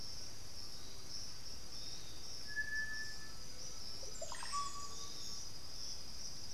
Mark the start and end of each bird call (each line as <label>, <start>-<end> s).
Great Antshrike (Taraba major), 0.0-6.0 s
Piratic Flycatcher (Legatus leucophaius), 0.0-6.5 s
Undulated Tinamou (Crypturellus undulatus), 2.8-5.0 s
Russet-backed Oropendola (Psarocolius angustifrons), 3.5-5.3 s
unidentified bird, 4.0-5.5 s